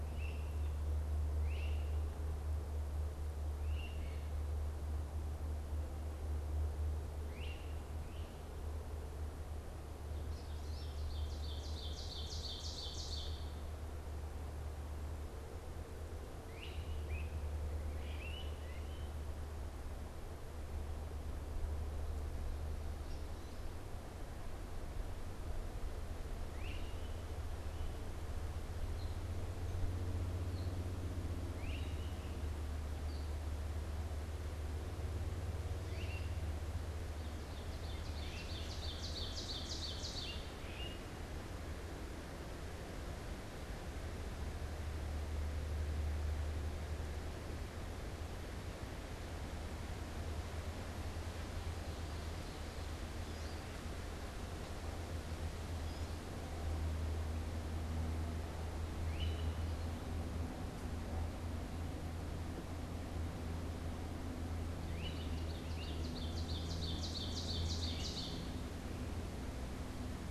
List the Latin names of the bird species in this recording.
Myiarchus crinitus, Seiurus aurocapilla, Spinus tristis